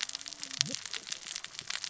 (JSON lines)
{"label": "biophony, cascading saw", "recorder": "SoundTrap 600 or HydroMoth"}